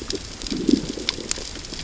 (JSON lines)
{"label": "biophony, growl", "recorder": "SoundTrap 600 or HydroMoth"}